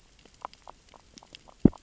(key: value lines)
label: biophony, grazing
recorder: SoundTrap 600 or HydroMoth